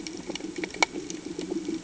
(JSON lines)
{"label": "anthrophony, boat engine", "recorder": "HydroMoth"}